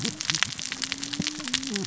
{"label": "biophony, cascading saw", "recorder": "SoundTrap 600 or HydroMoth"}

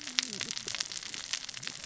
{"label": "biophony, cascading saw", "recorder": "SoundTrap 600 or HydroMoth"}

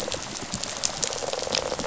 {"label": "biophony, rattle response", "recorder": "SoundTrap 500"}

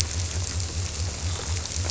{"label": "biophony", "recorder": "SoundTrap 300"}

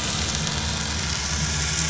{"label": "anthrophony, boat engine", "recorder": "SoundTrap 500"}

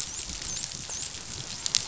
{"label": "biophony, dolphin", "recorder": "SoundTrap 500"}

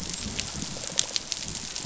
{"label": "biophony, rattle response", "recorder": "SoundTrap 500"}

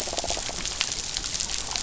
{"label": "biophony", "recorder": "SoundTrap 500"}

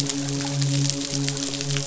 {"label": "biophony, midshipman", "recorder": "SoundTrap 500"}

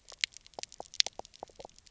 {"label": "biophony, pulse", "recorder": "SoundTrap 300"}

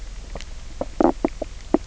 {"label": "biophony, knock croak", "recorder": "SoundTrap 300"}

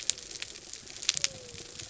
{"label": "biophony", "recorder": "SoundTrap 300"}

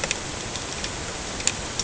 {"label": "ambient", "recorder": "HydroMoth"}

